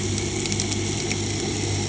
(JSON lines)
{"label": "anthrophony, boat engine", "recorder": "HydroMoth"}